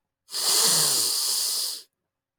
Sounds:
Sniff